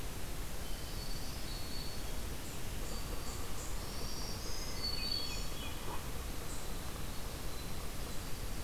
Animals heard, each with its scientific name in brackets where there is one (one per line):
Hermit Thrush (Catharus guttatus)
Black-throated Green Warbler (Setophaga virens)